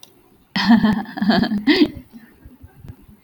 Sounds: Laughter